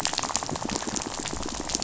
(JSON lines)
{"label": "biophony, rattle", "recorder": "SoundTrap 500"}